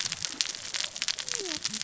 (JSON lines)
{"label": "biophony, cascading saw", "recorder": "SoundTrap 600 or HydroMoth"}